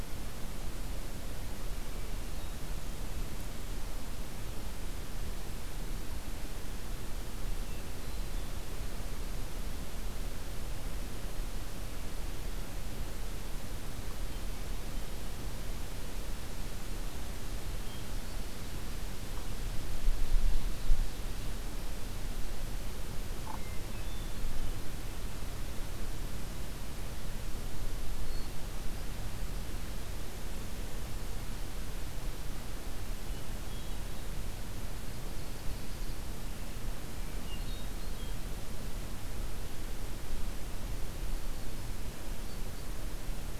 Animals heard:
Ovenbird (Seiurus aurocapilla)
Hermit Thrush (Catharus guttatus)

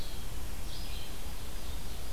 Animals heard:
Eastern Wood-Pewee (Contopus virens)
Red-eyed Vireo (Vireo olivaceus)
Ovenbird (Seiurus aurocapilla)

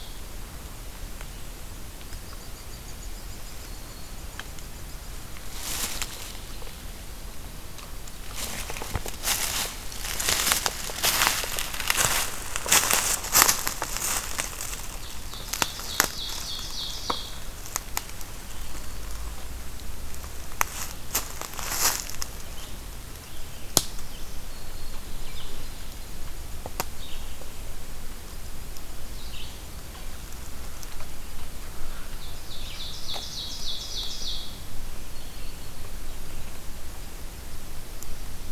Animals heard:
unidentified call
Black-throated Green Warbler (Setophaga virens)
Red-eyed Vireo (Vireo olivaceus)
Ovenbird (Seiurus aurocapilla)

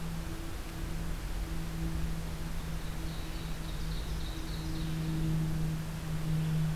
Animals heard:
Ovenbird (Seiurus aurocapilla)
Red-eyed Vireo (Vireo olivaceus)

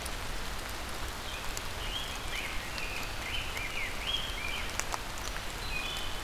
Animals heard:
Rose-breasted Grosbeak (Pheucticus ludovicianus)
Wood Thrush (Hylocichla mustelina)

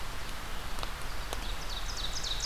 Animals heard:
Ovenbird (Seiurus aurocapilla)
Red-eyed Vireo (Vireo olivaceus)

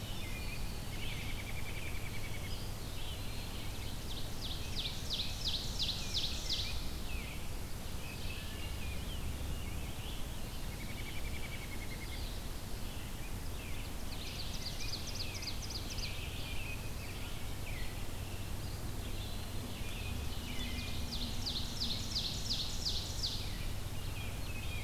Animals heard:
Ovenbird (Seiurus aurocapilla)
Rose-breasted Grosbeak (Pheucticus ludovicianus)
Red-eyed Vireo (Vireo olivaceus)
American Robin (Turdus migratorius)
Eastern Wood-Pewee (Contopus virens)

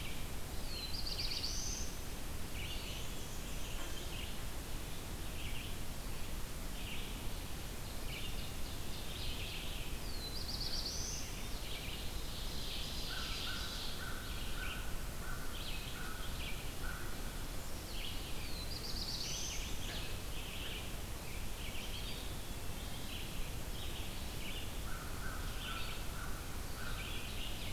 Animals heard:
Black-throated Blue Warbler (Setophaga caerulescens)
Eastern Wood-Pewee (Contopus virens)
Ovenbird (Seiurus aurocapilla)
Black-and-white Warbler (Mniotilta varia)
American Crow (Corvus brachyrhynchos)
Red-eyed Vireo (Vireo olivaceus)

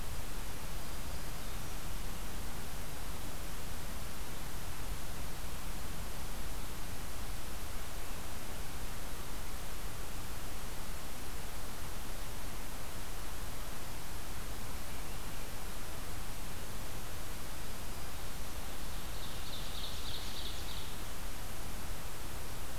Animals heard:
Black-throated Green Warbler (Setophaga virens)
Ovenbird (Seiurus aurocapilla)

